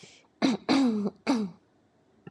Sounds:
Throat clearing